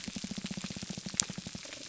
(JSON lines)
{"label": "biophony", "recorder": "SoundTrap 300"}